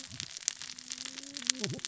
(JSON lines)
{"label": "biophony, cascading saw", "recorder": "SoundTrap 600 or HydroMoth"}